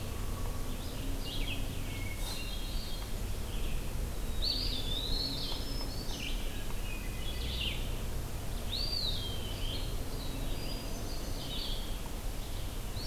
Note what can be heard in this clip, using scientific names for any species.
Vireo olivaceus, Catharus guttatus, Contopus virens, Setophaga virens